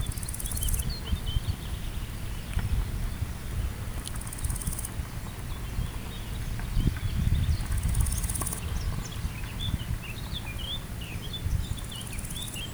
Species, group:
Chrysochraon dispar
Orthoptera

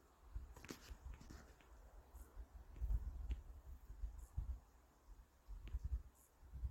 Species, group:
Chorthippus brunneus
Orthoptera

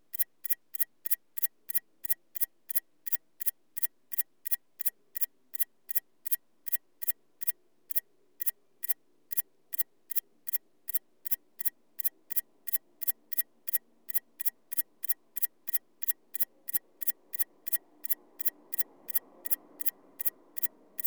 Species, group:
Antaxius spinibrachius
Orthoptera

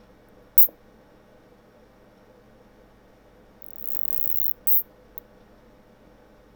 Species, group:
Isophya speciosa
Orthoptera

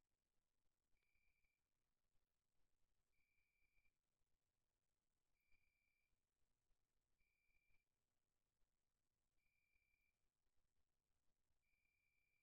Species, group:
Oecanthus pellucens
Orthoptera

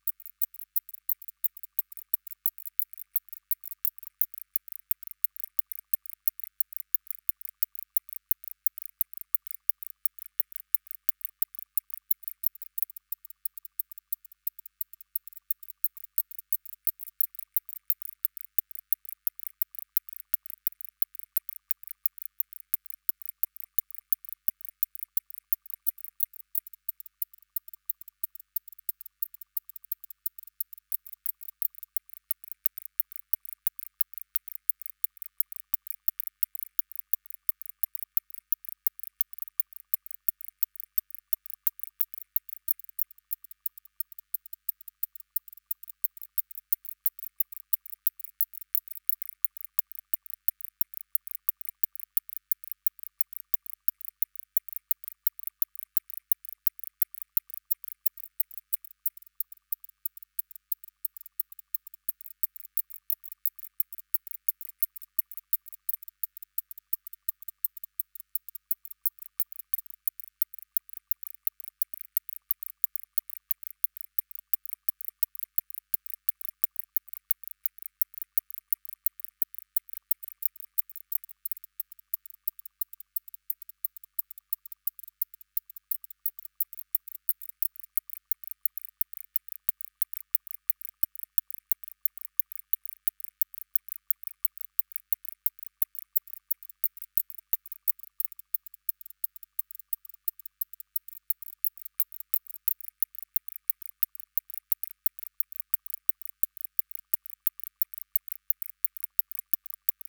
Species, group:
Barbitistes kaltenbachi
Orthoptera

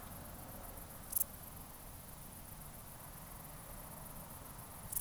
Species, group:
Pholidoptera griseoaptera
Orthoptera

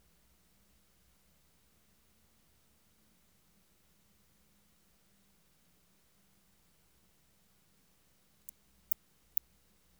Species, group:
Tylopsis lilifolia
Orthoptera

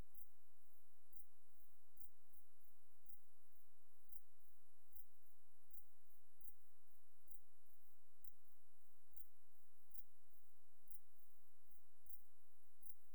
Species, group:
Leptophyes punctatissima
Orthoptera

